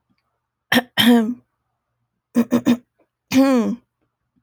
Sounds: Throat clearing